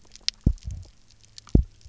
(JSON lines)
{"label": "biophony, double pulse", "recorder": "SoundTrap 300"}